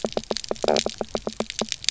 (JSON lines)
{"label": "biophony, knock croak", "recorder": "SoundTrap 300"}